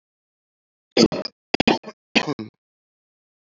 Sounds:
Cough